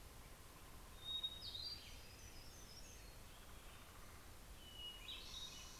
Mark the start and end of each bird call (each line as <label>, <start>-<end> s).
Hermit Thrush (Catharus guttatus), 0.0-5.8 s
Hermit Warbler (Setophaga occidentalis), 1.1-4.7 s